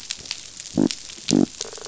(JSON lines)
{"label": "biophony", "recorder": "SoundTrap 500"}
{"label": "biophony, rattle response", "recorder": "SoundTrap 500"}